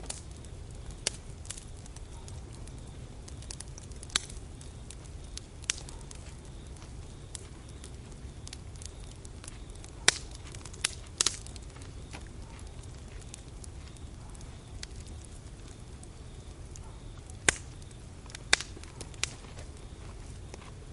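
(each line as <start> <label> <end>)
0.0 Fire crackling softly and repeatedly outdoors. 20.9
0.0 Crickets chirp rhythmically and repeatedly in the distance outdoors. 20.9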